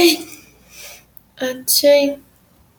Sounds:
Sneeze